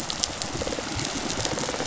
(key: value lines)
label: biophony, rattle response
recorder: SoundTrap 500